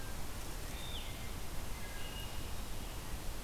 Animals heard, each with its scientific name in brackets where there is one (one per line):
Wood Thrush (Hylocichla mustelina)